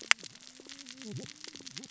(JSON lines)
{"label": "biophony, cascading saw", "recorder": "SoundTrap 600 or HydroMoth"}